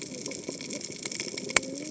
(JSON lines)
{"label": "biophony, cascading saw", "recorder": "HydroMoth"}